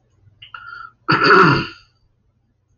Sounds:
Throat clearing